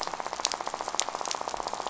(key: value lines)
label: biophony, rattle
recorder: SoundTrap 500